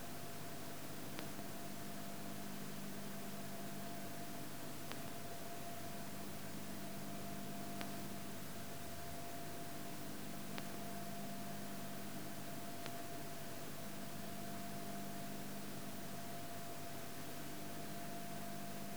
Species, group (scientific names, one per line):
Leptophyes boscii
Orthoptera